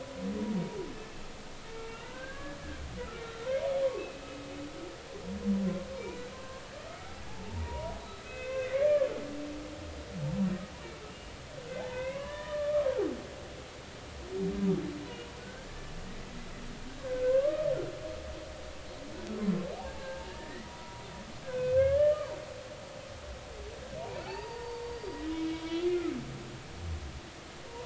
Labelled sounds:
1.9	2.6	humpback whale, 1.3 to 1.8 kHz
3.2	3.5	humpback whale, 1.3 to 1.4 kHz
3.9	4.3	humpback whale, 2.4 to 2.7 kHz
6.3	6.6	humpback whale, 0.99 to 1.7 kHz
7.3	9.1	humpback whale, 0.80 to 4.1 kHz
11.9	13.1	humpback whale, 0.80 to 3.0 kHz
15.4	15.7	humpback whale, 1.4 to 1.7 kHz
17.0	17.7	humpback whale, 0.96 to 1.7 kHz
19.7	21.0	humpback whale, 0.80 to 2.0 kHz
21.4	22.3	humpback whale, 1.4 to 3.0 kHz
24.0	25.9	humpback whale, 0.80 to 4.8 kHz
26.9	27.1	humpback whale, 2.0 to 2.2 kHz

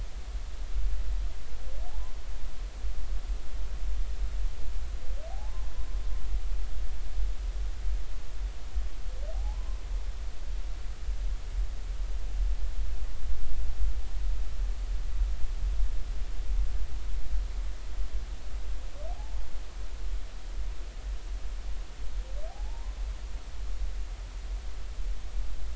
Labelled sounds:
1.9	2.2	humpback whale, 0.80 to 1.1 kHz
5.3	5.6	humpback whale, 0.80 to 0.93 kHz
9.3	9.7	humpback whale, 0.80 to 1.1 kHz
19.1	19.4	humpback whale, 0.80 to 0.93 kHz
22.5	23.0	humpback whale, 0.80 to 1.1 kHz

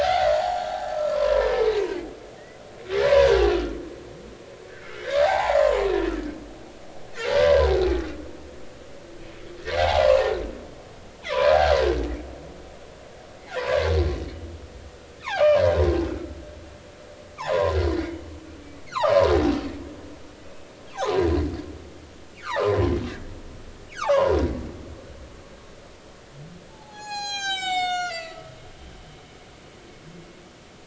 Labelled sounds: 0.0	1.5	humpback whale, 0.80 to 7.0 kHz
3.0	3.7	humpback whale, 0.86 to 1.4 kHz
5.2	5.6	humpback whale, 0.80 to 1.1 kHz
7.4	7.7	humpback whale, 0.96 to 1.2 kHz
9.8	10.3	humpback whale, 0.80 to 1.2 kHz
11.3	11.7	humpback whale, 0.93 to 2.5 kHz
13.6	14.5	humpback whale, 0.86 to 3.0 kHz
15.2	15.6	humpback whale, 2.0 to 2.7 kHz
16.1	16.5	humpback whale, 0.80 to 1.5 kHz
17.4	19.3	humpback whale, 0.80 to 4.5 kHz
20.9	21.3	humpback whale, 0.80 to 1.3 kHz
22.4	22.8	humpback whale, 0.80 to 1.9 kHz
24.0	24.4	humpback whale, 0.80 to 1.8 kHz
26.7	28.5	humpback whale, 0.80 to 8.0 kHz

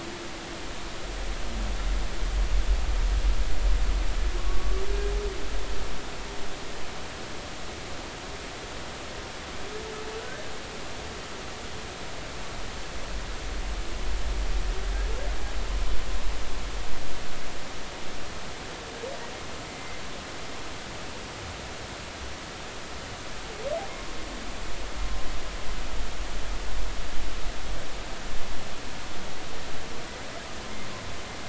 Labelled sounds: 4.4	4.8	humpback whale, 1.1 to 1.2 kHz
19.7	20.0	humpback whale, 2.0 to 2.1 kHz

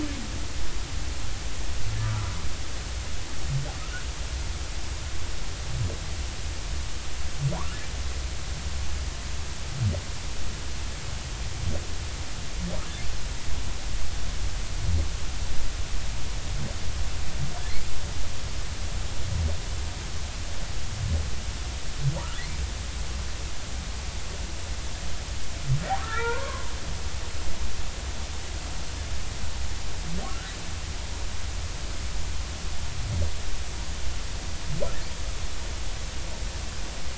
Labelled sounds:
26.0	26.7	humpback whale, 0.86 to 2.0 kHz

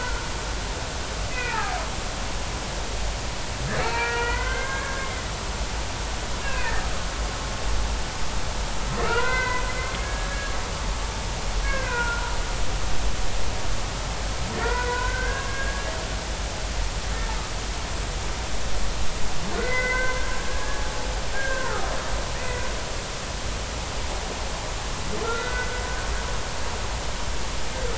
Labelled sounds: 1.3	1.8	humpback whale, 0.80 to 2.6 kHz
3.8	5.2	humpback whale, 0.83 to 4.3 kHz
6.4	6.8	humpback whale, 1.5 to 2.8 kHz
9.0	10.5	humpback whale, 0.90 to 4.1 kHz
11.6	12.3	humpback whale, 0.90 to 2.6 kHz
14.5	15.9	humpback whale, 0.90 to 2.1 kHz
19.5	20.2	humpback whale, 1.4 to 2.1 kHz
20.4	21.9	humpback whale, 1.2 to 1.8 kHz
22.3	22.6	humpback whale, 1.8 to 2.0 kHz
25.2	25.7	humpback whale, 1.3 to 2.0 kHz

